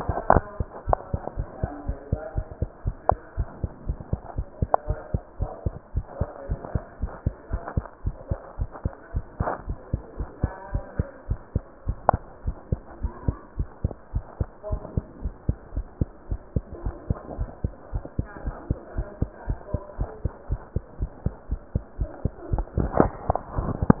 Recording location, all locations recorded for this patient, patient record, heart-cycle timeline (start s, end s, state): mitral valve (MV)
aortic valve (AV)+pulmonary valve (PV)+tricuspid valve (TV)+mitral valve (MV)
#Age: Child
#Sex: Female
#Height: 130.0 cm
#Weight: 24.8 kg
#Pregnancy status: False
#Murmur: Absent
#Murmur locations: nan
#Most audible location: nan
#Systolic murmur timing: nan
#Systolic murmur shape: nan
#Systolic murmur grading: nan
#Systolic murmur pitch: nan
#Systolic murmur quality: nan
#Diastolic murmur timing: nan
#Diastolic murmur shape: nan
#Diastolic murmur grading: nan
#Diastolic murmur pitch: nan
#Diastolic murmur quality: nan
#Outcome: Abnormal
#Campaign: 2015 screening campaign
0.00	2.84	unannotated
2.84	2.96	S1
2.96	3.08	systole
3.08	3.22	S2
3.22	3.38	diastole
3.38	3.50	S1
3.50	3.60	systole
3.60	3.70	S2
3.70	3.86	diastole
3.86	4.00	S1
4.00	4.10	systole
4.10	4.20	S2
4.20	4.36	diastole
4.36	4.46	S1
4.46	4.58	systole
4.58	4.72	S2
4.72	4.88	diastole
4.88	4.98	S1
4.98	5.10	systole
5.10	5.22	S2
5.22	5.40	diastole
5.40	5.52	S1
5.52	5.62	systole
5.62	5.74	S2
5.74	5.90	diastole
5.90	6.04	S1
6.04	6.18	systole
6.18	6.28	S2
6.28	6.48	diastole
6.48	6.62	S1
6.62	6.72	systole
6.72	6.82	S2
6.82	7.00	diastole
7.00	7.14	S1
7.14	7.24	systole
7.24	7.34	S2
7.34	7.50	diastole
7.50	7.62	S1
7.62	7.74	systole
7.74	7.88	S2
7.88	8.04	diastole
8.04	8.18	S1
8.18	8.28	systole
8.28	8.38	S2
8.38	8.58	diastole
8.58	8.68	S1
8.68	8.82	systole
8.82	8.92	S2
8.92	9.10	diastole
9.10	9.24	S1
9.24	9.38	systole
9.38	9.48	S2
9.48	9.66	diastole
9.66	9.78	S1
9.78	9.90	systole
9.90	10.04	S2
10.04	10.18	diastole
10.18	10.28	S1
10.28	10.40	systole
10.40	10.54	S2
10.54	10.72	diastole
10.72	10.84	S1
10.84	10.96	systole
10.96	11.10	S2
11.10	11.28	diastole
11.28	11.38	S1
11.38	11.52	systole
11.52	11.66	S2
11.66	11.86	diastole
11.86	12.00	S1
12.00	12.10	systole
12.10	12.24	S2
12.24	12.44	diastole
12.44	12.56	S1
12.56	12.68	systole
12.68	12.80	S2
12.80	12.98	diastole
12.98	13.12	S1
13.12	13.26	systole
13.26	13.40	S2
13.40	13.58	diastole
13.58	13.68	S1
13.68	13.80	systole
13.80	13.96	S2
13.96	14.14	diastole
14.14	14.24	S1
14.24	14.36	systole
14.36	14.52	S2
14.52	14.70	diastole
14.70	14.80	S1
14.80	14.94	systole
14.94	15.04	S2
15.04	15.22	diastole
15.22	15.34	S1
15.34	15.46	systole
15.46	15.60	S2
15.60	15.74	diastole
15.74	15.86	S1
15.86	15.98	systole
15.98	16.12	S2
16.12	16.30	diastole
16.30	16.40	S1
16.40	16.52	systole
16.52	16.64	S2
16.64	16.84	diastole
16.84	16.96	S1
16.96	17.08	systole
17.08	17.18	S2
17.18	17.34	diastole
17.34	17.48	S1
17.48	17.60	systole
17.60	17.72	S2
17.72	17.92	diastole
17.92	18.04	S1
18.04	18.14	systole
18.14	18.26	S2
18.26	18.44	diastole
18.44	18.56	S1
18.56	18.68	systole
18.68	18.78	S2
18.78	18.96	diastole
18.96	19.06	S1
19.06	19.20	systole
19.20	19.30	S2
19.30	19.48	diastole
19.48	19.58	S1
19.58	19.72	systole
19.72	19.82	S2
19.82	19.98	diastole
19.98	20.10	S1
20.10	20.22	systole
20.22	20.32	S2
20.32	20.50	diastole
20.50	20.60	S1
20.60	20.72	systole
20.72	20.84	S2
20.84	21.00	diastole
21.00	21.10	S1
21.10	21.22	systole
21.22	21.34	S2
21.34	21.50	diastole
21.50	21.60	S1
21.60	21.74	systole
21.74	21.84	S2
21.84	22.00	diastole
22.00	22.10	S1
22.10	22.24	systole
22.24	22.34	S2
22.34	22.50	diastole
22.50	24.00	unannotated